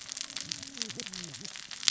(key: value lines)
label: biophony, cascading saw
recorder: SoundTrap 600 or HydroMoth